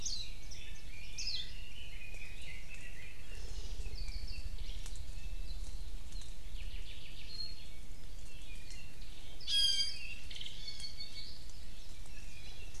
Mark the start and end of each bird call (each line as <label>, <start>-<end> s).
Warbling White-eye (Zosterops japonicus), 0.0-1.5 s
Red-billed Leiothrix (Leiothrix lutea), 0.1-3.4 s
Hawaii Amakihi (Chlorodrepanis virens), 3.2-3.8 s
Apapane (Himatione sanguinea), 3.8-4.5 s
Apapane (Himatione sanguinea), 6.5-7.4 s
Apapane (Himatione sanguinea), 7.9-9.5 s
Iiwi (Drepanis coccinea), 9.4-10.2 s
Apapane (Himatione sanguinea), 10.3-11.3 s
Iiwi (Drepanis coccinea), 10.5-11.0 s
Iiwi (Drepanis coccinea), 12.3-12.8 s